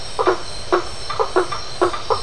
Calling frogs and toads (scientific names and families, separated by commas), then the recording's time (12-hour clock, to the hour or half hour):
Boana faber (Hylidae)
~8pm